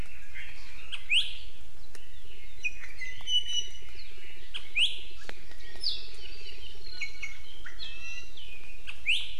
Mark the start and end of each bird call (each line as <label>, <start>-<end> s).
Iiwi (Drepanis coccinea), 0.9-1.3 s
Iiwi (Drepanis coccinea), 2.6-4.1 s
Iiwi (Drepanis coccinea), 4.5-5.1 s
Iiwi (Drepanis coccinea), 6.9-8.5 s
Iiwi (Drepanis coccinea), 8.8-9.2 s